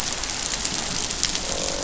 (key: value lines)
label: biophony, croak
recorder: SoundTrap 500